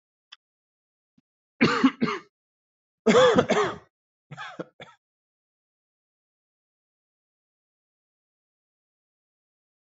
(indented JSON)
{
  "expert_labels": [
    {
      "quality": "good",
      "cough_type": "dry",
      "dyspnea": false,
      "wheezing": false,
      "stridor": false,
      "choking": false,
      "congestion": false,
      "nothing": true,
      "diagnosis": "healthy cough",
      "severity": "pseudocough/healthy cough"
    }
  ],
  "age": 31,
  "gender": "male",
  "respiratory_condition": false,
  "fever_muscle_pain": false,
  "status": "symptomatic"
}